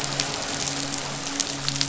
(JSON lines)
{"label": "biophony, midshipman", "recorder": "SoundTrap 500"}